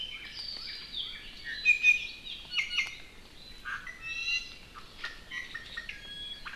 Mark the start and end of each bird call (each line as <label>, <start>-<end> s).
Apapane (Himatione sanguinea), 0.0-1.3 s
Northern Cardinal (Cardinalis cardinalis), 0.0-1.4 s
Iiwi (Drepanis coccinea), 1.4-2.2 s
Iiwi (Drepanis coccinea), 2.5-4.7 s
Iiwi (Drepanis coccinea), 5.0-6.5 s